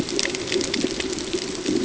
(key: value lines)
label: ambient
recorder: HydroMoth